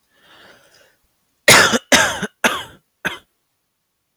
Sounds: Cough